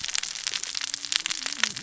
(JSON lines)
{"label": "biophony, cascading saw", "recorder": "SoundTrap 600 or HydroMoth"}